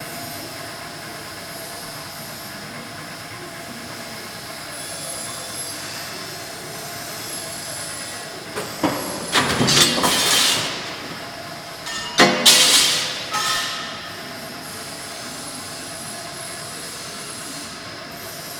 Is there any singing going on?
no